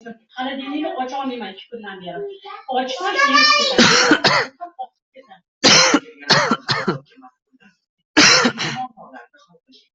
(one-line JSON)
{"expert_labels": [{"quality": "poor", "cough_type": "dry", "dyspnea": false, "wheezing": false, "stridor": false, "choking": false, "congestion": false, "nothing": true, "diagnosis": "COVID-19", "severity": "mild"}], "gender": "female", "respiratory_condition": true, "fever_muscle_pain": false, "status": "COVID-19"}